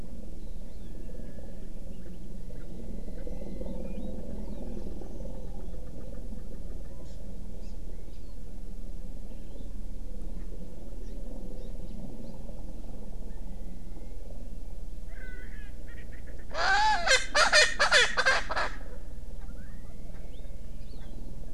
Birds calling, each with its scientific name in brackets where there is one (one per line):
Warbling White-eye (Zosterops japonicus)
Erckel's Francolin (Pternistis erckelii)
Hawaii Amakihi (Chlorodrepanis virens)